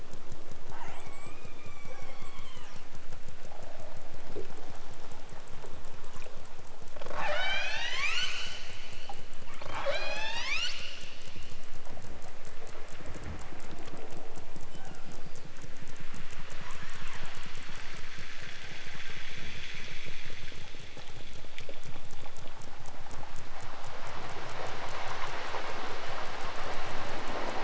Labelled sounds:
0.6	2.8	killer whale, southern Alaska resident, 0.55 to 8.0 kHz
7.0	8.9	killer whale, southern Alaska resident, 0.32 to 8.0 kHz
9.6	11.4	killer whale, southern Alaska resident, 0.28 to 8.0 kHz
16.6	17.5	killer whale, southern Alaska resident, 0.46 to 8.0 kHz

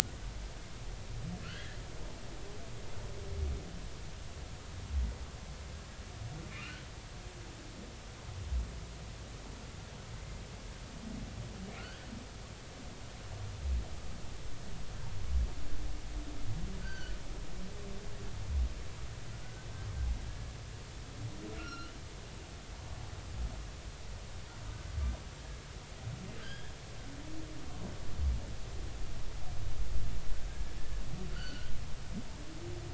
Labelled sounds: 1.4	1.8	humpback whale, 1.3 to 3.3 kHz
16.8	17.2	humpback whale, 1.4 to 4.7 kHz
20.3	20.5	humpback whale, 1.6 to 1.7 kHz
21.6	22.0	humpback whale, 1.3 to 4.3 kHz
26.4	26.7	humpback whale, 1.5 to 3.4 kHz
31.3	31.7	humpback whale, 1.3 to 4.7 kHz

